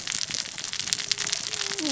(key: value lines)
label: biophony, cascading saw
recorder: SoundTrap 600 or HydroMoth